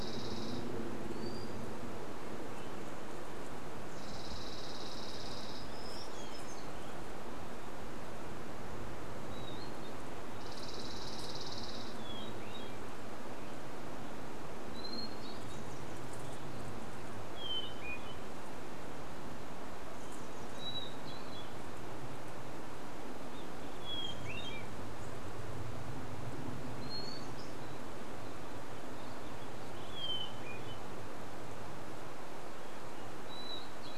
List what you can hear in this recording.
Spotted Towhee song, unidentified sound, airplane, Dark-eyed Junco song, warbler song, Hermit Thrush song, Chestnut-backed Chickadee call, Warbling Vireo song